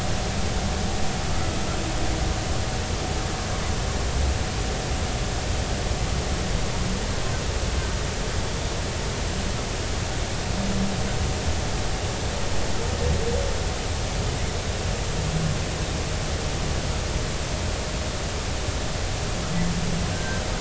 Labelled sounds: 20.1	20.4	humpback whale, 1.5 to 1.6 kHz

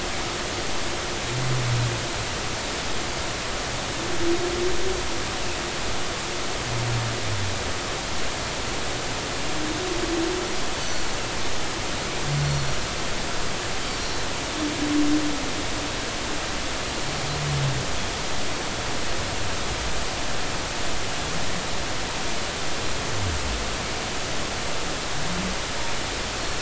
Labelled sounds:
10.8	11.1	Pacific white-sided dolphin, 4.3 to 6.2 kHz
14.0	14.3	Pacific white-sided dolphin, 4.0 to 5.7 kHz

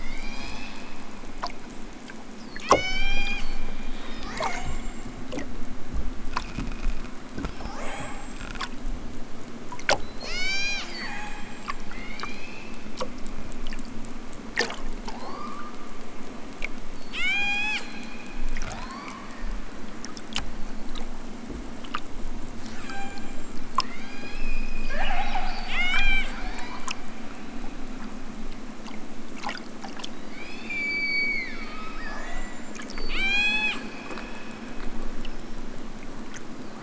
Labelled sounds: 0.0	0.9	killer whale, southern Alaska resident, 0.60 to 8.0 kHz
2.6	3.7	killer whale, southern Alaska resident, 0.60 to 8.0 kHz
4.0	5.3	killer whale, southern Alaska resident, 0.50 to 8.0 kHz
10.0	12.9	killer whale, southern Alaska resident, 0.37 to 8.0 kHz
15.1	15.9	killer whale, southern Alaska resident, 0.28 to 5.4 kHz
17.1	17.9	killer whale, southern Alaska resident, 0.50 to 8.0 kHz
18.6	19.3	killer whale, southern Alaska resident, 0.37 to 6.4 kHz
22.6	25.2	killer whale, southern Alaska resident, 0.37 to 8.0 kHz
25.7	27.0	killer whale, southern Alaska resident, 0.78 to 8.0 kHz
30.3	34.1	killer whale, southern Alaska resident, 0.50 to 8.0 kHz

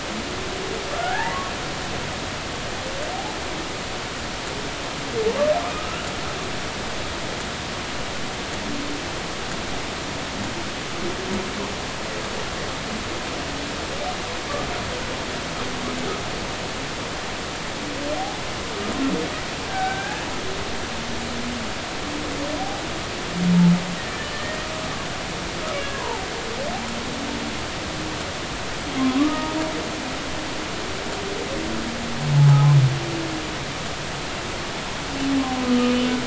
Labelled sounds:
0.9	1.4	humpback whale, 0.80 to 1.9 kHz
5.7	6.1	humpback whale, 1.2 to 1.5 kHz
18.1	18.4	humpback whale, 0.80 to 0.90 kHz
19.6	20.2	humpback whale, 1.5 to 1.8 kHz
24.1	24.6	humpback whale, 1.7 to 1.9 kHz
25.9	26.3	humpback whale, 0.80 to 1.1 kHz
29.0	29.6	humpback whale, 0.86 to 1.3 kHz
32.4	32.7	humpback whale, 0.80 to 0.90 kHz
35.6	36.0	humpback whale, 1.2 to 2.5 kHz

